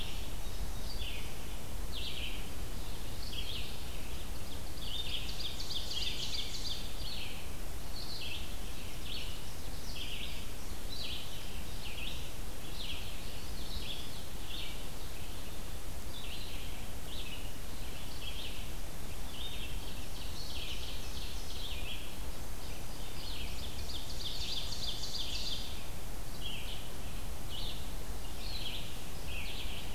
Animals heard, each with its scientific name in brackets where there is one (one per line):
Indigo Bunting (Passerina cyanea)
Ovenbird (Seiurus aurocapilla)
Red-eyed Vireo (Vireo olivaceus)